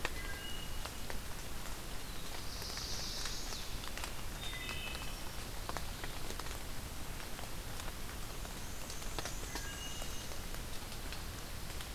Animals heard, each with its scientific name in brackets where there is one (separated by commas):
Wood Thrush (Hylocichla mustelina), Black-and-white Warbler (Mniotilta varia), Chestnut-sided Warbler (Setophaga pensylvanica), Black-throated Blue Warbler (Setophaga caerulescens)